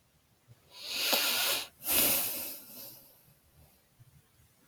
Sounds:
Sigh